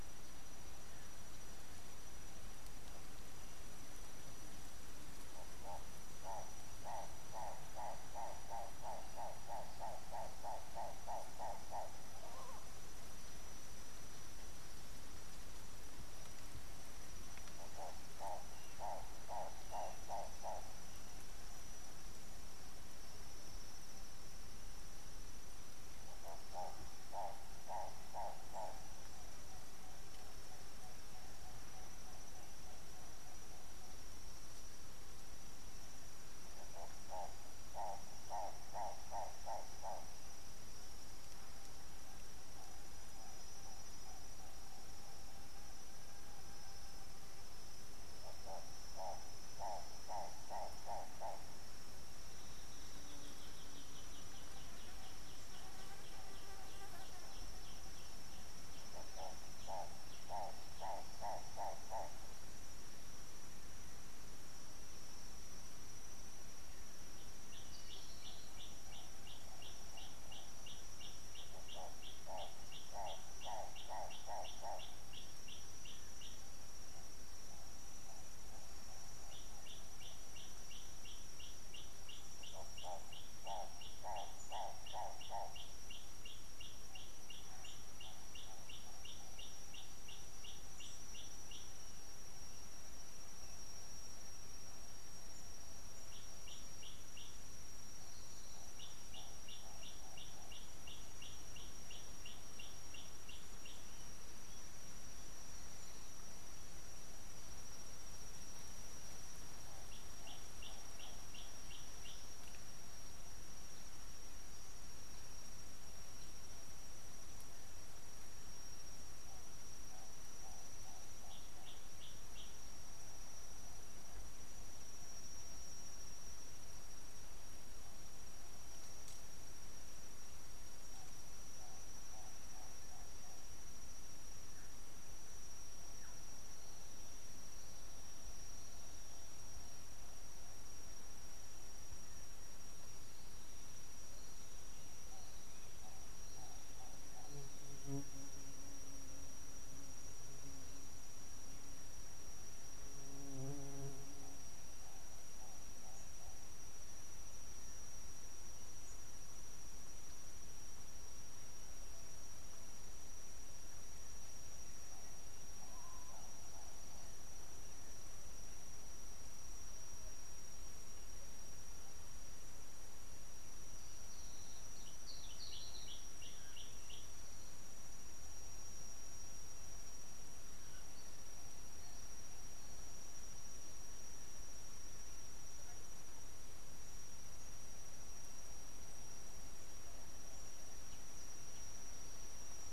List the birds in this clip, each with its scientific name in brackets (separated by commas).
Gray Apalis (Apalis cinerea), Hartlaub's Turaco (Tauraco hartlaubi)